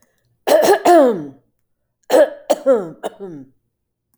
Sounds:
Throat clearing